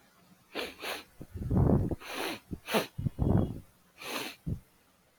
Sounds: Sniff